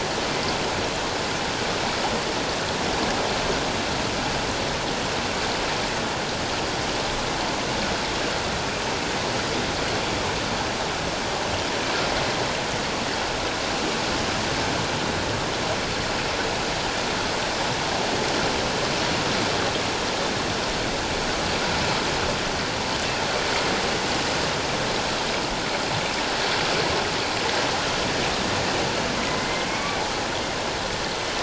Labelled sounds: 29.3	30.0	killer whale, northern resident, 1.9 to 2.4 kHz

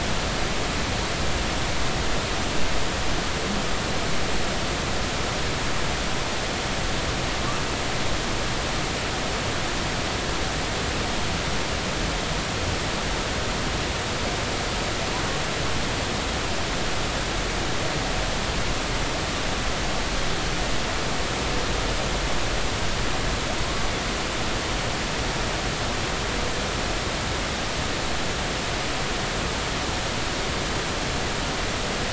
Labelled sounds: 23.6	23.9	humpback whale, 0.93 to 1.2 kHz

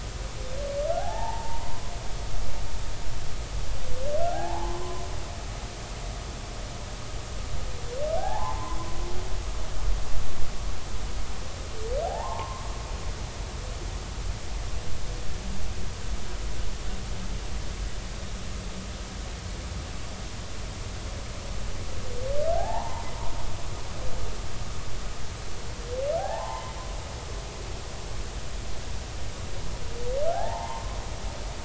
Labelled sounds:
0.9	1.9	humpback whale, 0.80 to 1.9 kHz
4.2	5.0	humpback whale, 0.80 to 1.8 kHz
8.2	8.8	humpback whale, 0.80 to 1.8 kHz
12.1	12.7	humpback whale, 0.80 to 1.2 kHz
22.5	23.1	humpback whale, 0.80 to 1.9 kHz
26.2	26.7	humpback whale, 0.80 to 1.9 kHz
30.3	31.0	humpback whale, 0.80 to 1.9 kHz

